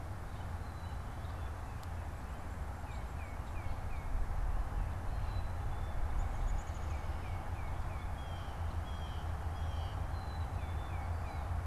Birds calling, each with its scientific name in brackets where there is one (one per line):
Tufted Titmouse (Baeolophus bicolor)
Downy Woodpecker (Dryobates pubescens)
Black-capped Chickadee (Poecile atricapillus)
Blue Jay (Cyanocitta cristata)